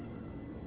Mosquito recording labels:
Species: Culex quinquefasciatus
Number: one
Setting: insect culture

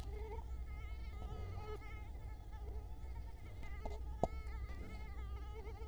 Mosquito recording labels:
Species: Culex quinquefasciatus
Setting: cup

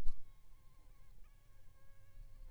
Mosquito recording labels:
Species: Aedes aegypti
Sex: female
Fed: unfed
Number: one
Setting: cup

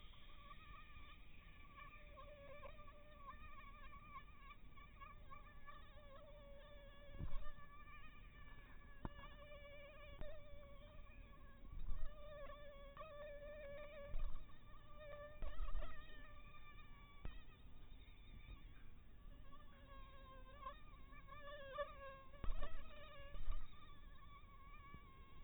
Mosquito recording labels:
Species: mosquito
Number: one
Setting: cup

